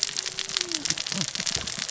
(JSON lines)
{"label": "biophony, cascading saw", "recorder": "SoundTrap 600 or HydroMoth"}